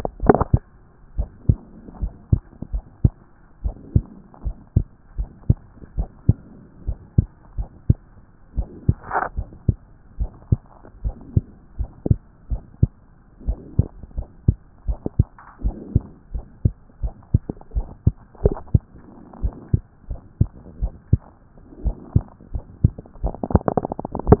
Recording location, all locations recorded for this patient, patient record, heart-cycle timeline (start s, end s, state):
pulmonary valve (PV)
aortic valve (AV)+pulmonary valve (PV)+tricuspid valve (TV)+mitral valve (MV)
#Age: Child
#Sex: Female
#Height: 124.0 cm
#Weight: 22.9 kg
#Pregnancy status: False
#Murmur: Absent
#Murmur locations: nan
#Most audible location: nan
#Systolic murmur timing: nan
#Systolic murmur shape: nan
#Systolic murmur grading: nan
#Systolic murmur pitch: nan
#Systolic murmur quality: nan
#Diastolic murmur timing: nan
#Diastolic murmur shape: nan
#Diastolic murmur grading: nan
#Diastolic murmur pitch: nan
#Diastolic murmur quality: nan
#Outcome: Normal
#Campaign: 2014 screening campaign
0.00	1.16	unannotated
1.16	1.28	S1
1.28	1.48	systole
1.48	1.58	S2
1.58	2.00	diastole
2.00	2.12	S1
2.12	2.30	systole
2.30	2.42	S2
2.42	2.72	diastole
2.72	2.84	S1
2.84	3.02	systole
3.02	3.12	S2
3.12	3.64	diastole
3.64	3.76	S1
3.76	3.94	systole
3.94	4.04	S2
4.04	4.44	diastole
4.44	4.56	S1
4.56	4.74	systole
4.74	4.86	S2
4.86	5.18	diastole
5.18	5.28	S1
5.28	5.48	systole
5.48	5.58	S2
5.58	5.96	diastole
5.96	6.08	S1
6.08	6.28	systole
6.28	6.38	S2
6.38	6.86	diastole
6.86	6.98	S1
6.98	7.16	systole
7.16	7.26	S2
7.26	7.58	diastole
7.58	7.68	S1
7.68	7.88	systole
7.88	7.98	S2
7.98	8.56	diastole
8.56	8.68	S1
8.68	8.86	systole
8.86	8.96	S2
8.96	9.36	diastole
9.36	9.48	S1
9.48	9.66	systole
9.66	9.76	S2
9.76	10.18	diastole
10.18	10.30	S1
10.30	10.50	systole
10.50	10.60	S2
10.60	11.04	diastole
11.04	11.16	S1
11.16	11.34	systole
11.34	11.44	S2
11.44	11.78	diastole
11.78	11.90	S1
11.90	12.08	systole
12.08	12.18	S2
12.18	12.50	diastole
12.50	12.62	S1
12.62	12.80	systole
12.80	12.90	S2
12.90	13.46	diastole
13.46	13.58	S1
13.58	13.78	systole
13.78	13.88	S2
13.88	14.18	diastole
14.18	14.28	S1
14.28	14.46	systole
14.46	14.56	S2
14.56	14.88	diastole
14.88	14.98	S1
14.98	15.18	systole
15.18	15.28	S2
15.28	15.62	diastole
15.62	15.76	S1
15.76	15.94	systole
15.94	16.04	S2
16.04	16.34	diastole
16.34	16.46	S1
16.46	16.64	systole
16.64	16.74	S2
16.74	17.02	diastole
17.02	17.12	S1
17.12	17.32	systole
17.32	17.42	S2
17.42	17.74	diastole
17.74	17.86	S1
17.86	18.04	systole
18.04	18.14	S2
18.14	18.44	diastole
18.44	18.56	S1
18.56	18.72	systole
18.72	18.82	S2
18.82	19.42	diastole
19.42	19.54	S1
19.54	19.72	systole
19.72	19.82	S2
19.82	20.10	diastole
20.10	24.40	unannotated